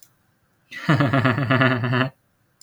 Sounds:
Laughter